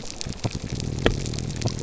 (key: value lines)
label: biophony, grouper groan
recorder: SoundTrap 300